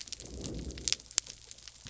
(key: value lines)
label: biophony
recorder: SoundTrap 300